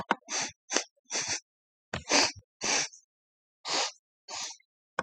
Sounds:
Sniff